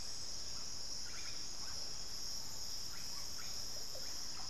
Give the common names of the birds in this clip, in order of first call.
Russet-backed Oropendola